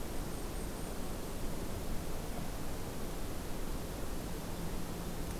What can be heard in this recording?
Blackpoll Warbler